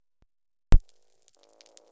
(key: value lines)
label: biophony
recorder: SoundTrap 300